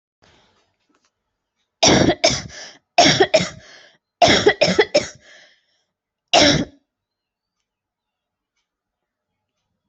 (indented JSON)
{
  "expert_labels": [
    {
      "quality": "ok",
      "cough_type": "dry",
      "dyspnea": false,
      "wheezing": false,
      "stridor": false,
      "choking": false,
      "congestion": false,
      "nothing": true,
      "diagnosis": "lower respiratory tract infection",
      "severity": "mild"
    }
  ],
  "age": 28,
  "gender": "female",
  "respiratory_condition": false,
  "fever_muscle_pain": false,
  "status": "symptomatic"
}